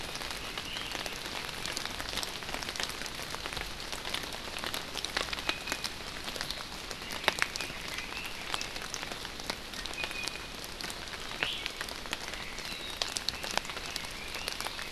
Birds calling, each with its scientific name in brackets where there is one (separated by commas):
Iiwi (Drepanis coccinea), Red-billed Leiothrix (Leiothrix lutea)